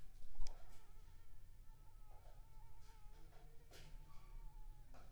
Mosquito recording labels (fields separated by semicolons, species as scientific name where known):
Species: Anopheles arabiensis; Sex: female; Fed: unfed; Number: one; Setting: cup